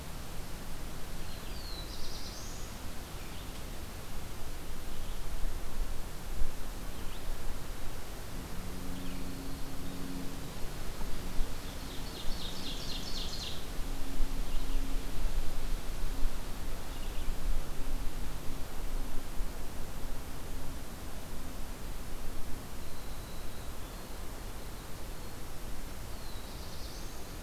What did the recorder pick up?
Red-eyed Vireo, Black-throated Blue Warbler, Winter Wren, Ovenbird